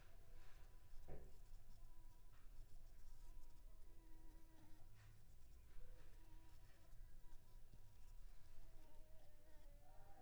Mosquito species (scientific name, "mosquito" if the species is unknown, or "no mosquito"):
Anopheles squamosus